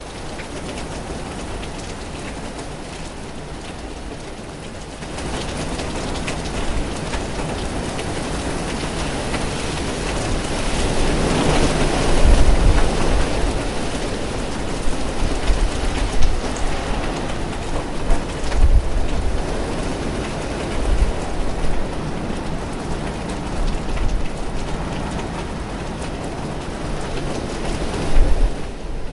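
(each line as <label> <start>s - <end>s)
Noise. 0.0s - 29.1s
Rain falling. 0.0s - 29.1s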